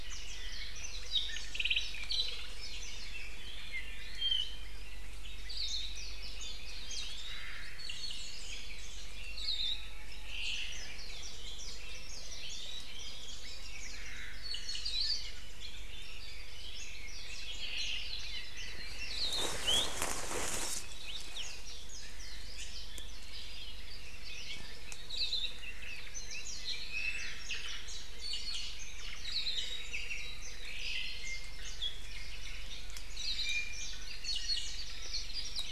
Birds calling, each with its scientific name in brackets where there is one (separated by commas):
Omao (Myadestes obscurus), Apapane (Himatione sanguinea), Warbling White-eye (Zosterops japonicus), Iiwi (Drepanis coccinea), Hawaii Akepa (Loxops coccineus)